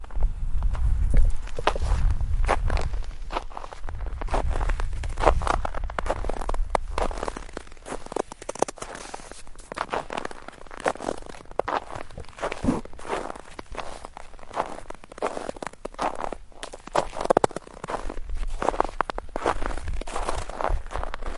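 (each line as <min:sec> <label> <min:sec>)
0:00.0 Someone is walking repeatedly outside in the snow. 0:21.4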